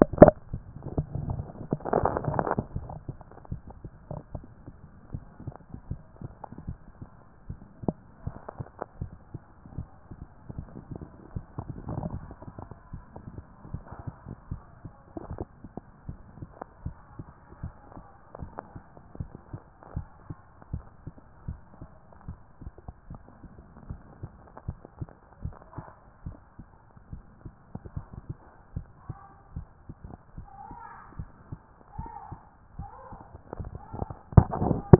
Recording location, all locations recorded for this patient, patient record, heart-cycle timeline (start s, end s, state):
tricuspid valve (TV)
pulmonary valve (PV)+tricuspid valve (TV)
#Age: nan
#Sex: Female
#Height: nan
#Weight: nan
#Pregnancy status: True
#Murmur: Absent
#Murmur locations: nan
#Most audible location: nan
#Systolic murmur timing: nan
#Systolic murmur shape: nan
#Systolic murmur grading: nan
#Systolic murmur pitch: nan
#Systolic murmur quality: nan
#Diastolic murmur timing: nan
#Diastolic murmur shape: nan
#Diastolic murmur grading: nan
#Diastolic murmur pitch: nan
#Diastolic murmur quality: nan
#Outcome: Normal
#Campaign: 2014 screening campaign
0.00	16.06	unannotated
16.06	16.18	S1
16.18	16.38	systole
16.38	16.48	S2
16.48	16.84	diastole
16.84	16.96	S1
16.96	17.16	systole
17.16	17.26	S2
17.26	17.62	diastole
17.62	17.74	S1
17.74	17.94	systole
17.94	18.04	S2
18.04	18.40	diastole
18.40	18.52	S1
18.52	18.72	systole
18.72	18.82	S2
18.82	19.18	diastole
19.18	19.30	S1
19.30	19.52	systole
19.52	19.60	S2
19.60	19.94	diastole
19.94	20.06	S1
20.06	20.28	systole
20.28	20.38	S2
20.38	20.72	diastole
20.72	20.84	S1
20.84	21.04	systole
21.04	21.14	S2
21.14	21.46	diastole
21.46	21.58	S1
21.58	21.80	systole
21.80	21.88	S2
21.88	22.26	diastole
22.26	22.38	S1
22.38	22.60	systole
22.60	22.72	S2
22.72	23.10	diastole
23.10	23.20	S1
23.20	23.40	systole
23.40	23.50	S2
23.50	23.88	diastole
23.88	24.00	S1
24.00	24.20	systole
24.20	24.32	S2
24.32	24.66	diastole
24.66	24.78	S1
24.78	25.00	systole
25.00	25.08	S2
25.08	25.42	diastole
25.42	25.54	S1
25.54	25.76	systole
25.76	25.86	S2
25.86	26.26	diastole
26.26	26.36	S1
26.36	26.58	systole
26.58	26.66	S2
26.66	27.10	diastole
27.10	34.99	unannotated